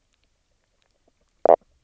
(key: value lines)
label: biophony, knock croak
recorder: SoundTrap 300